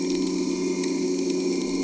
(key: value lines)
label: anthrophony, boat engine
recorder: HydroMoth